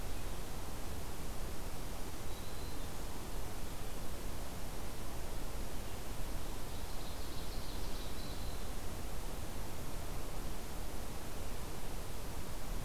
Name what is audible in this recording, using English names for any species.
Black-throated Green Warbler, Ovenbird